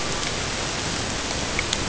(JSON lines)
{"label": "ambient", "recorder": "HydroMoth"}